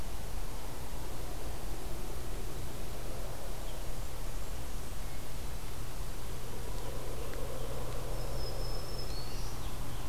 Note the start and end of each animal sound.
3.7s-5.1s: Blackburnian Warbler (Setophaga fusca)
7.7s-9.6s: Black-throated Green Warbler (Setophaga virens)

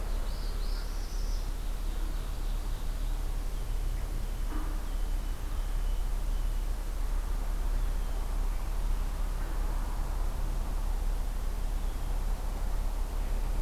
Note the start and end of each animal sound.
0.0s-1.5s: Northern Parula (Setophaga americana)
1.3s-3.2s: Ovenbird (Seiurus aurocapilla)

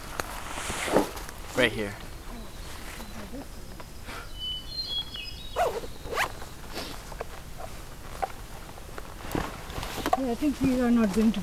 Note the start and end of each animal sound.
1.4s-6.9s: Winter Wren (Troglodytes hiemalis)
4.2s-5.8s: Hermit Thrush (Catharus guttatus)

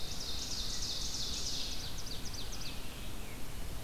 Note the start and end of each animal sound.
0.0s-2.9s: Ovenbird (Seiurus aurocapilla)
0.0s-3.8s: Red-eyed Vireo (Vireo olivaceus)

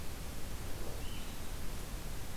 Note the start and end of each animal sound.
0.0s-2.4s: Blue-headed Vireo (Vireo solitarius)

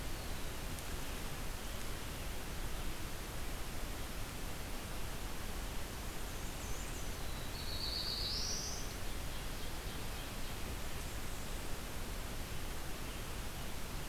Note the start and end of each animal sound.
0.0s-1.1s: Black-throated Blue Warbler (Setophaga caerulescens)
0.8s-14.1s: Red-eyed Vireo (Vireo olivaceus)
5.8s-7.3s: Black-and-white Warbler (Mniotilta varia)
7.0s-9.1s: Black-throated Blue Warbler (Setophaga caerulescens)
8.6s-10.7s: Ovenbird (Seiurus aurocapilla)
10.1s-11.8s: Blackburnian Warbler (Setophaga fusca)

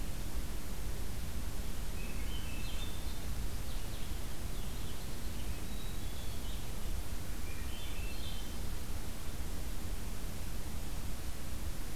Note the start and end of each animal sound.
1.7s-3.3s: Swainson's Thrush (Catharus ustulatus)
2.8s-5.6s: unidentified call
5.6s-6.5s: Black-capped Chickadee (Poecile atricapillus)
7.3s-8.8s: Swainson's Thrush (Catharus ustulatus)

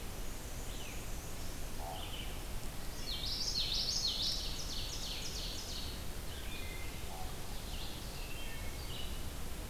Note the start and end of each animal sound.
0.0s-1.6s: Black-and-white Warbler (Mniotilta varia)
0.0s-9.7s: Common Raven (Corvus corax)
0.0s-9.7s: Red-eyed Vireo (Vireo olivaceus)
2.8s-3.4s: Wood Thrush (Hylocichla mustelina)
2.9s-4.6s: Common Yellowthroat (Geothlypis trichas)
4.3s-5.9s: Ovenbird (Seiurus aurocapilla)
6.3s-7.0s: Wood Thrush (Hylocichla mustelina)
8.1s-8.8s: Wood Thrush (Hylocichla mustelina)

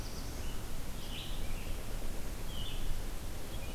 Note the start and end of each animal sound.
0.0s-0.7s: Black-throated Blue Warbler (Setophaga caerulescens)
0.0s-3.7s: Red-eyed Vireo (Vireo olivaceus)

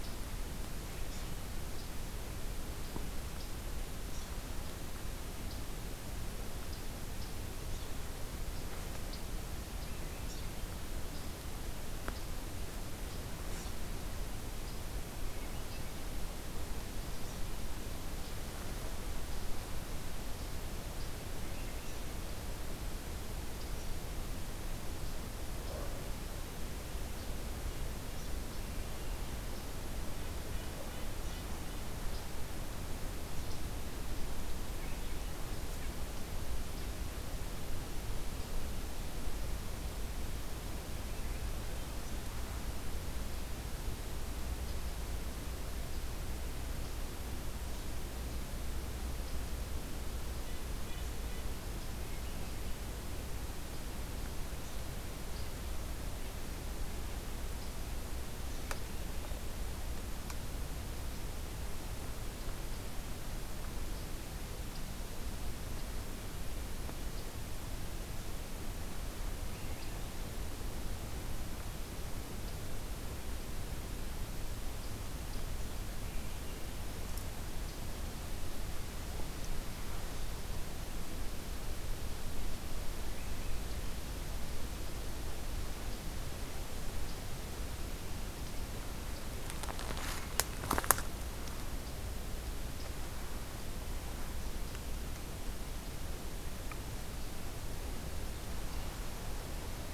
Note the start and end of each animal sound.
30.2s-31.9s: Red-breasted Nuthatch (Sitta canadensis)
50.3s-51.7s: Red-breasted Nuthatch (Sitta canadensis)

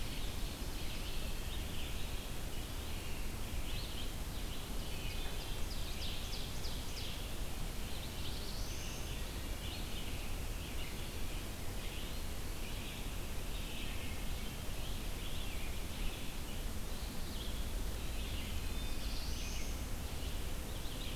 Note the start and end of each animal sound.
0.0s-1.3s: Ovenbird (Seiurus aurocapilla)
0.0s-21.2s: Red-eyed Vireo (Vireo olivaceus)
2.4s-3.3s: Eastern Wood-Pewee (Contopus virens)
4.6s-7.4s: Ovenbird (Seiurus aurocapilla)
7.7s-9.2s: Black-throated Blue Warbler (Setophaga caerulescens)
9.0s-9.8s: Wood Thrush (Hylocichla mustelina)
18.2s-19.0s: Wood Thrush (Hylocichla mustelina)
18.5s-19.8s: Black-throated Blue Warbler (Setophaga caerulescens)

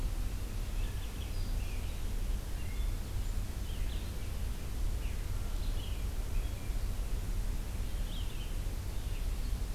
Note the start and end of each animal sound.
0.0s-9.7s: Red-eyed Vireo (Vireo olivaceus)

